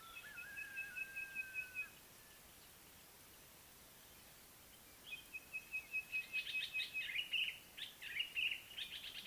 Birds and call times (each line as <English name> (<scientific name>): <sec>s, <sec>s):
Sulphur-breasted Bushshrike (Telophorus sulfureopectus): 5.7s
Common Bulbul (Pycnonotus barbatus): 7.4s